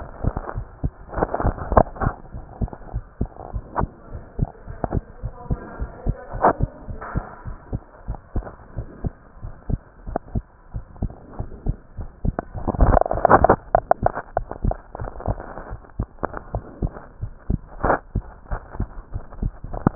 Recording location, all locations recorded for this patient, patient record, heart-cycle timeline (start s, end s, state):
pulmonary valve (PV)
aortic valve (AV)+pulmonary valve (PV)+tricuspid valve (TV)+mitral valve (MV)
#Age: Child
#Sex: Male
#Height: 141.0 cm
#Weight: 35.7 kg
#Pregnancy status: False
#Murmur: Absent
#Murmur locations: nan
#Most audible location: nan
#Systolic murmur timing: nan
#Systolic murmur shape: nan
#Systolic murmur grading: nan
#Systolic murmur pitch: nan
#Systolic murmur quality: nan
#Diastolic murmur timing: nan
#Diastolic murmur shape: nan
#Diastolic murmur grading: nan
#Diastolic murmur pitch: nan
#Diastolic murmur quality: nan
#Outcome: Abnormal
#Campaign: 2015 screening campaign
0.00	2.30	unannotated
2.30	2.42	S1
2.42	2.58	systole
2.58	2.72	S2
2.72	2.94	diastole
2.94	3.04	S1
3.04	3.20	systole
3.20	3.30	S2
3.30	3.54	diastole
3.54	3.64	S1
3.64	3.78	systole
3.78	3.92	S2
3.92	4.12	diastole
4.12	4.22	S1
4.22	4.38	systole
4.38	4.52	S2
4.52	4.68	diastole
4.68	4.78	S1
4.78	4.92	systole
4.92	5.04	S2
5.04	5.22	diastole
5.22	5.34	S1
5.34	5.48	systole
5.48	5.60	S2
5.60	5.78	diastole
5.78	5.92	S1
5.92	6.05	systole
6.05	6.18	S2
6.18	6.32	diastole
6.32	6.46	S1
6.46	6.58	systole
6.58	6.72	S2
6.72	6.87	diastole
6.87	7.00	S1
7.00	7.14	systole
7.14	7.26	S2
7.26	7.44	diastole
7.44	7.58	S1
7.58	7.70	systole
7.70	7.82	S2
7.82	8.06	diastole
8.06	8.18	S1
8.18	8.34	systole
8.34	8.45	S2
8.45	8.74	diastole
8.74	8.86	S1
8.86	9.04	systole
9.04	9.14	S2
9.14	9.40	diastole
9.40	9.52	S1
9.52	9.68	systole
9.68	9.82	S2
9.82	10.06	diastole
10.06	10.16	S1
10.16	10.32	systole
10.32	10.44	S2
10.44	10.72	diastole
10.72	10.84	S1
10.84	11.00	systole
11.00	11.12	S2
11.12	11.38	diastole
11.38	11.48	S1
11.48	11.64	systole
11.64	11.76	S2
11.76	11.95	diastole
11.95	12.08	S1
12.08	12.20	systole
12.20	12.36	S2
12.36	12.54	diastole
12.54	19.95	unannotated